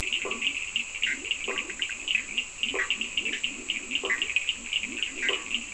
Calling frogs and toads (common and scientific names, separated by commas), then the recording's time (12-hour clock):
blacksmith tree frog (Boana faber), Leptodactylus latrans, Cochran's lime tree frog (Sphaenorhynchus surdus), Bischoff's tree frog (Boana bischoffi)
4:00am